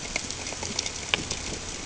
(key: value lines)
label: ambient
recorder: HydroMoth